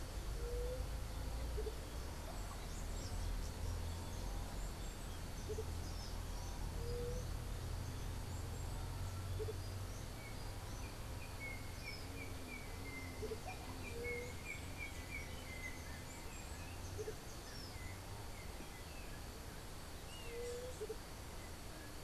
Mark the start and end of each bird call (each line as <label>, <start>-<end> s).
Andean Motmot (Momotus aequatorialis), 0.0-22.0 s
White-tipped Dove (Leptotila verreauxi), 0.4-0.9 s
White-tipped Dove (Leptotila verreauxi), 6.8-7.3 s
Yellow-backed Oriole (Icterus chrysater), 10.1-16.3 s
White-tipped Dove (Leptotila verreauxi), 13.9-14.4 s
White-tipped Dove (Leptotila verreauxi), 20.3-20.8 s